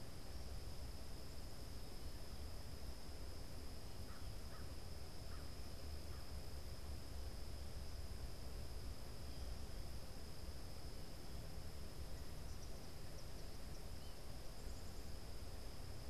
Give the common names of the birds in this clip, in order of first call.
American Crow, Eastern Kingbird